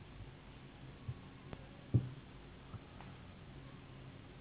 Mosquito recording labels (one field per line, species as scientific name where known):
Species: Anopheles gambiae s.s.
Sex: female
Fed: unfed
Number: one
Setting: insect culture